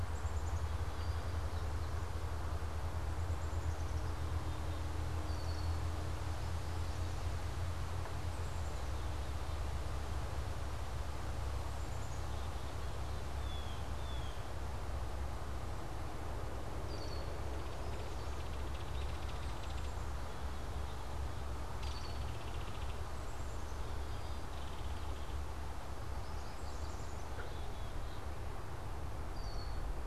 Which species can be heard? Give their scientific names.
Poecile atricapillus, Molothrus ater, Agelaius phoeniceus, Cyanocitta cristata, Megaceryle alcyon, Setophaga petechia